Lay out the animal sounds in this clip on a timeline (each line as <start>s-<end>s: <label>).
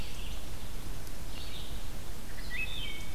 0.0s-3.1s: Red-eyed Vireo (Vireo olivaceus)
2.2s-3.1s: Wood Thrush (Hylocichla mustelina)